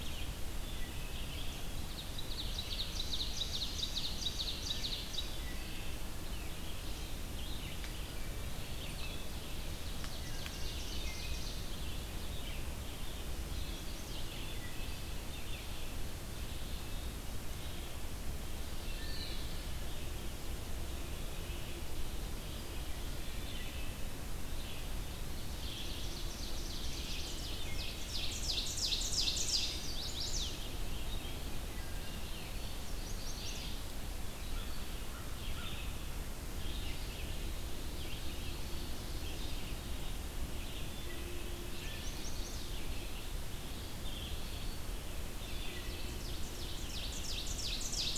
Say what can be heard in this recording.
Red-eyed Vireo, Wood Thrush, Ovenbird, Chestnut-sided Warbler, Eastern Wood-Pewee, American Crow